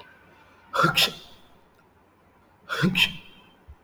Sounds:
Sneeze